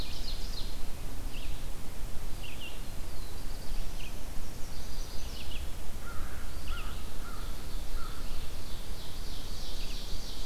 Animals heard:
American Crow (Corvus brachyrhynchos), Ovenbird (Seiurus aurocapilla), Chestnut-sided Warbler (Setophaga pensylvanica), Red-eyed Vireo (Vireo olivaceus), Black-throated Blue Warbler (Setophaga caerulescens)

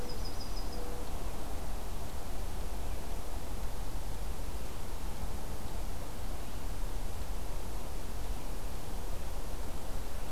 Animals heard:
Yellow-rumped Warbler (Setophaga coronata), Mourning Dove (Zenaida macroura)

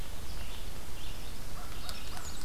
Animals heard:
Red-eyed Vireo (Vireo olivaceus), Yellow-rumped Warbler (Setophaga coronata), Black-and-white Warbler (Mniotilta varia), American Crow (Corvus brachyrhynchos)

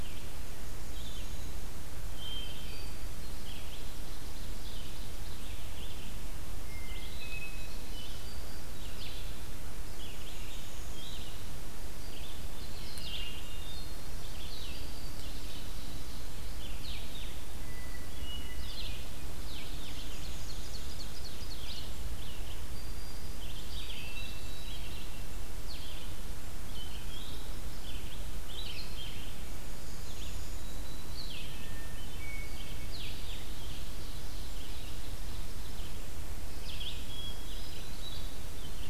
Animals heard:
Ovenbird (Seiurus aurocapilla), Red-eyed Vireo (Vireo olivaceus), Hermit Thrush (Catharus guttatus), Black-throated Green Warbler (Setophaga virens)

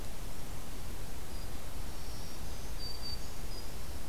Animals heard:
Black-throated Green Warbler (Setophaga virens)

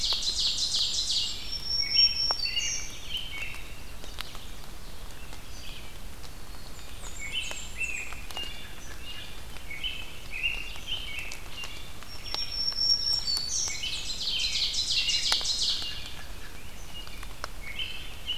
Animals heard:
Blackburnian Warbler (Setophaga fusca), American Robin (Turdus migratorius), Black-capped Chickadee (Poecile atricapillus), Black-throated Green Warbler (Setophaga virens), Ovenbird (Seiurus aurocapilla), Red-eyed Vireo (Vireo olivaceus)

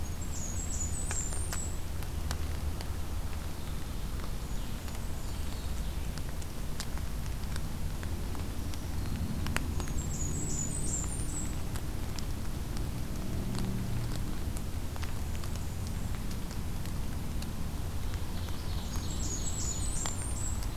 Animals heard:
Ovenbird (Seiurus aurocapilla), Blackburnian Warbler (Setophaga fusca)

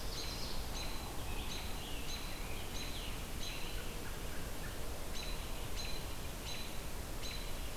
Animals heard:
Scarlet Tanager (Piranga olivacea), Ovenbird (Seiurus aurocapilla), American Robin (Turdus migratorius)

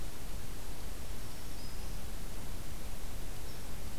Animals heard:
Black-throated Green Warbler (Setophaga virens)

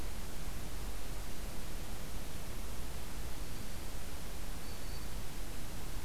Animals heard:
Black-throated Green Warbler (Setophaga virens)

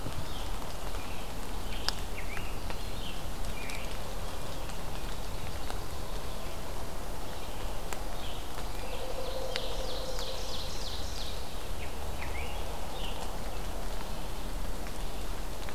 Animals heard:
Scarlet Tanager (Piranga olivacea), Ovenbird (Seiurus aurocapilla)

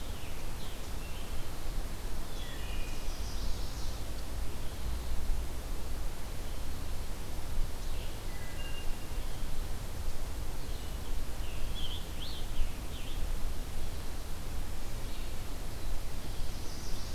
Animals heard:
Wood Thrush (Hylocichla mustelina), Red-eyed Vireo (Vireo olivaceus), Chestnut-sided Warbler (Setophaga pensylvanica), Scarlet Tanager (Piranga olivacea)

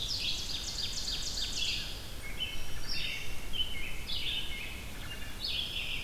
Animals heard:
Black-throated Green Warbler (Setophaga virens), American Robin (Turdus migratorius), Wood Thrush (Hylocichla mustelina), Ovenbird (Seiurus aurocapilla), Red-eyed Vireo (Vireo olivaceus), Pine Warbler (Setophaga pinus)

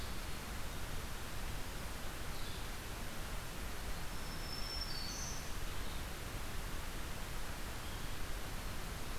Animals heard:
Black-throated Green Warbler (Setophaga virens), Red-eyed Vireo (Vireo olivaceus)

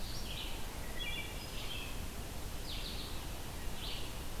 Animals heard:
Wood Thrush (Hylocichla mustelina), Red-eyed Vireo (Vireo olivaceus)

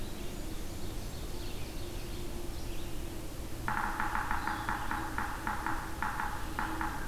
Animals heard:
Ovenbird (Seiurus aurocapilla), Red-eyed Vireo (Vireo olivaceus), Yellow-bellied Sapsucker (Sphyrapicus varius), Blackburnian Warbler (Setophaga fusca)

